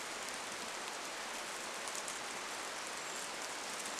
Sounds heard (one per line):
rain
Brown Creeper call